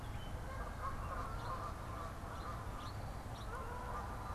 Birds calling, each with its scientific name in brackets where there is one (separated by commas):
House Finch (Haemorhous mexicanus), Canada Goose (Branta canadensis)